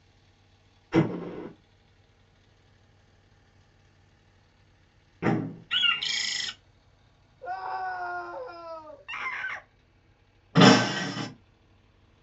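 First an explosion can be heard. Then a door slams. Afterwards, you can hear a bird. Later, someone screams. Following that, a person screams. Finally, glass shatters loudly.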